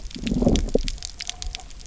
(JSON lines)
{"label": "biophony, low growl", "recorder": "SoundTrap 300"}